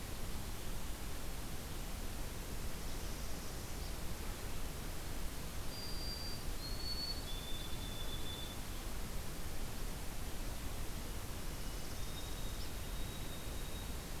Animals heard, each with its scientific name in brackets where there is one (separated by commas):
Northern Parula (Setophaga americana), White-throated Sparrow (Zonotrichia albicollis)